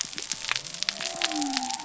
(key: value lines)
label: biophony
recorder: SoundTrap 300